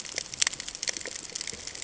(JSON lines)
{"label": "ambient", "recorder": "HydroMoth"}